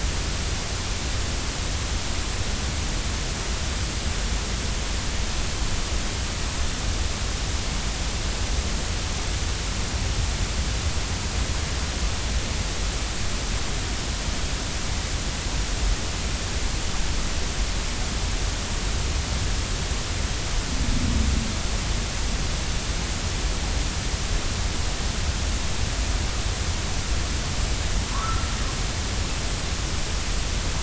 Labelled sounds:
28.2	28.5	humpback whale, 1.2 to 1.5 kHz

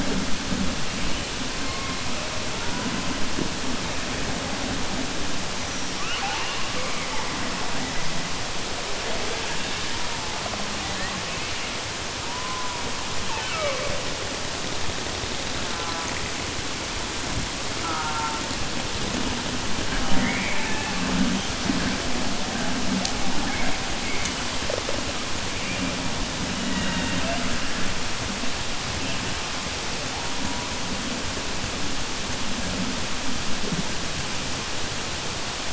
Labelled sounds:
5.9	7.3	killer whale, southern resident, 0.53 to 3.5 kHz

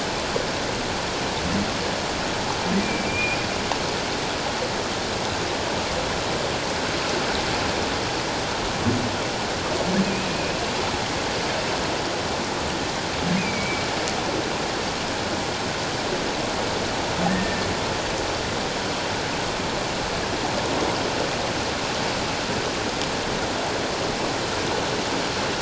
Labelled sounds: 2.8	3.4	humpback whale, 2.3 to 2.5 kHz
10.0	10.6	humpback whale, 2.4 to 2.7 kHz
13.4	13.8	humpback whale, 2.2 to 2.5 kHz
17.2	17.7	humpback whale, 1.7 to 1.9 kHz

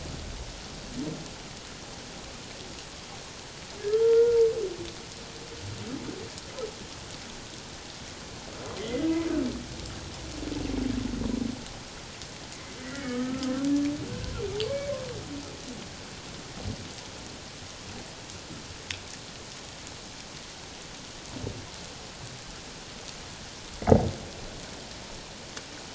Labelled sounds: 3.9	4.4	humpback whale, 1.2 to 1.5 kHz
8.8	9.1	humpback whale, 1.8 to 2.2 kHz
12.8	13.7	humpback whale, 1.2 to 2.0 kHz
14.7	14.9	humpback whale, 2.2 to 2.3 kHz

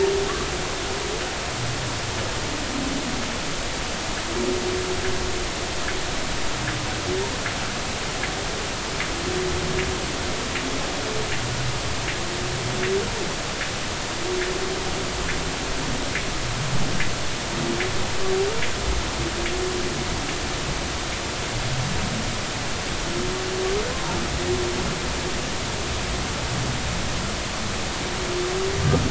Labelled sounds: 23.9	24.2	humpback whale, 0.86 to 1.1 kHz

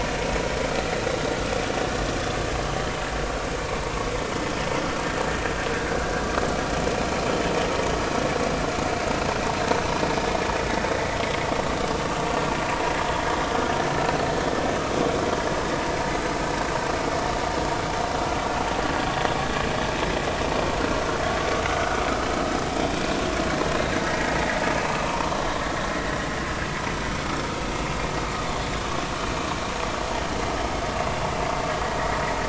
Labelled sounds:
12.0	12.3	vessel noise, 2.6 to 2.8 kHz
24.0	25.3	vessel noise, 0.90 to 2.7 kHz

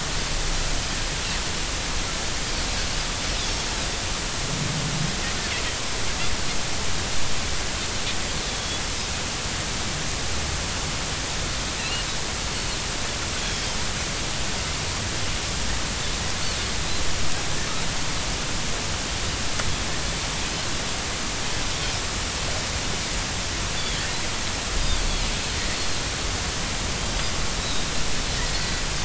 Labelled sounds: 8.5	8.8	Pacific white-sided dolphin, 3.2 to 3.5 kHz
12.8	13.7	Pacific white-sided dolphin, 2.6 to 3.4 kHz
23.8	24.0	Pacific white-sided dolphin, 2.9 to 3.6 kHz
27.6	27.9	Pacific white-sided dolphin, 3.6 to 4.1 kHz

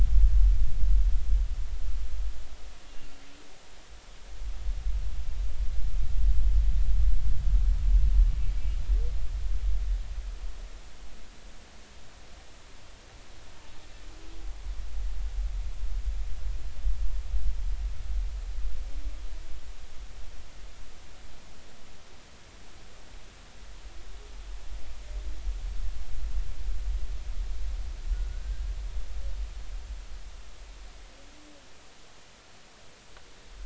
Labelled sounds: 2.8	3.1	humpback whale, 2.7 to 2.8 kHz
28.3	28.7	humpback whale, 1.4 to 1.7 kHz

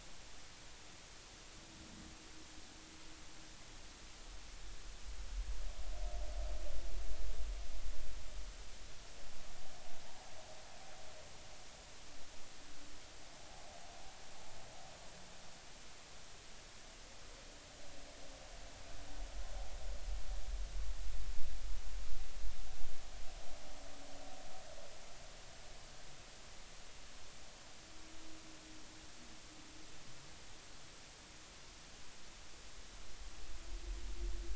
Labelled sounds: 13.4	13.7	humpback whale, 0.80 to 0.90 kHz

